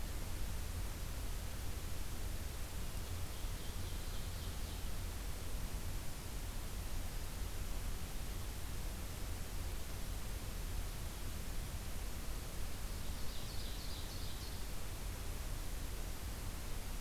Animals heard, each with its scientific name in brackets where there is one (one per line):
Ovenbird (Seiurus aurocapilla)